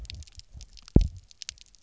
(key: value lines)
label: biophony, double pulse
recorder: SoundTrap 300